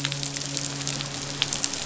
{"label": "biophony, midshipman", "recorder": "SoundTrap 500"}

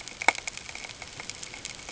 {"label": "ambient", "recorder": "HydroMoth"}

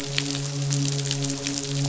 {"label": "biophony, midshipman", "recorder": "SoundTrap 500"}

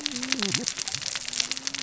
{"label": "biophony, cascading saw", "recorder": "SoundTrap 600 or HydroMoth"}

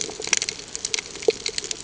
{"label": "ambient", "recorder": "HydroMoth"}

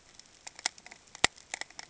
{"label": "ambient", "recorder": "HydroMoth"}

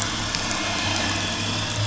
{"label": "anthrophony, boat engine", "recorder": "SoundTrap 500"}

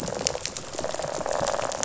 {"label": "biophony, rattle response", "recorder": "SoundTrap 500"}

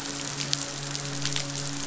{"label": "biophony, midshipman", "recorder": "SoundTrap 500"}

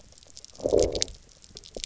{"label": "biophony, low growl", "recorder": "SoundTrap 300"}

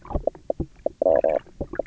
{"label": "biophony, knock croak", "recorder": "SoundTrap 300"}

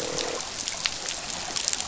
{"label": "biophony, croak", "recorder": "SoundTrap 500"}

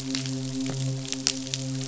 {"label": "biophony, midshipman", "recorder": "SoundTrap 500"}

